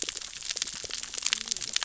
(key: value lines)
label: biophony, cascading saw
recorder: SoundTrap 600 or HydroMoth